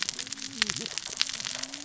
{"label": "biophony, cascading saw", "recorder": "SoundTrap 600 or HydroMoth"}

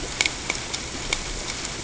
{"label": "ambient", "recorder": "HydroMoth"}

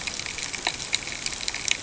{"label": "ambient", "recorder": "HydroMoth"}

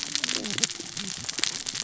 {"label": "biophony, cascading saw", "recorder": "SoundTrap 600 or HydroMoth"}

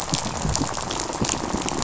{"label": "biophony, rattle", "recorder": "SoundTrap 500"}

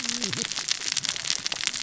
{"label": "biophony, cascading saw", "recorder": "SoundTrap 600 or HydroMoth"}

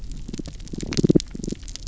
{"label": "biophony, damselfish", "recorder": "SoundTrap 300"}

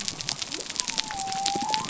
{"label": "biophony", "recorder": "SoundTrap 300"}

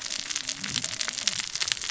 {"label": "biophony, cascading saw", "recorder": "SoundTrap 600 or HydroMoth"}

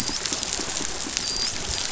{"label": "biophony, dolphin", "recorder": "SoundTrap 500"}
{"label": "biophony", "recorder": "SoundTrap 500"}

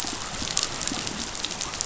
{"label": "biophony", "recorder": "SoundTrap 500"}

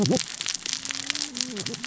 {"label": "biophony, cascading saw", "recorder": "SoundTrap 600 or HydroMoth"}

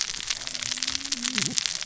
{"label": "biophony, cascading saw", "recorder": "SoundTrap 600 or HydroMoth"}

